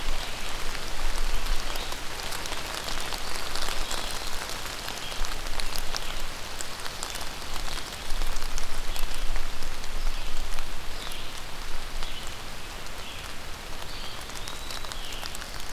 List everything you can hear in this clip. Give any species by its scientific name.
Vireo olivaceus, Contopus virens